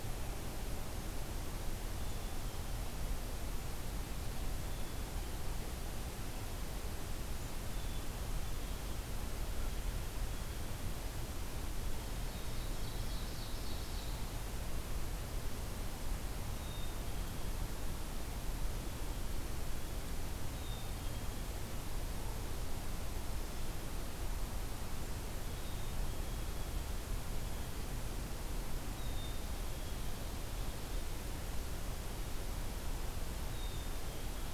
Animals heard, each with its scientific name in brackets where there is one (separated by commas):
Ovenbird (Seiurus aurocapilla), Blue Jay (Cyanocitta cristata), Black-capped Chickadee (Poecile atricapillus)